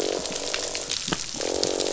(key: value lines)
label: biophony, croak
recorder: SoundTrap 500